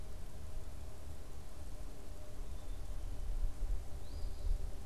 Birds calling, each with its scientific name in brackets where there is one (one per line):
Eastern Phoebe (Sayornis phoebe)
Black-capped Chickadee (Poecile atricapillus)